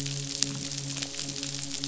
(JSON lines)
{"label": "biophony, midshipman", "recorder": "SoundTrap 500"}